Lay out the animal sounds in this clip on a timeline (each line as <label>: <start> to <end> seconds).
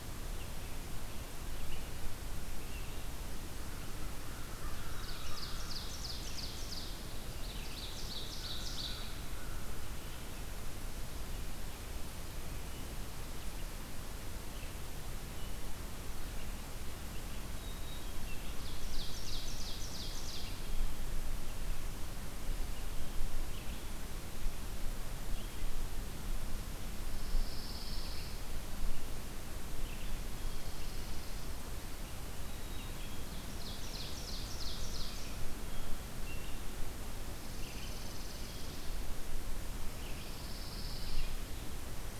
Red-eyed Vireo (Vireo olivaceus): 0.0 to 25.8 seconds
American Crow (Corvus brachyrhynchos): 2.8 to 6.0 seconds
Ovenbird (Seiurus aurocapilla): 4.7 to 9.2 seconds
American Crow (Corvus brachyrhynchos): 7.8 to 10.3 seconds
Black-throated Green Warbler (Setophaga virens): 17.3 to 18.2 seconds
Ovenbird (Seiurus aurocapilla): 18.4 to 20.6 seconds
Pine Warbler (Setophaga pinus): 26.9 to 28.5 seconds
Red-eyed Vireo (Vireo olivaceus): 27.9 to 42.2 seconds
Chipping Sparrow (Spizella passerina): 30.2 to 31.5 seconds
Black-capped Chickadee (Poecile atricapillus): 32.3 to 33.5 seconds
Ovenbird (Seiurus aurocapilla): 33.3 to 35.5 seconds
American Crow (Corvus brachyrhynchos): 34.0 to 35.3 seconds
Chipping Sparrow (Spizella passerina): 37.0 to 39.1 seconds
Pine Warbler (Setophaga pinus): 39.9 to 41.5 seconds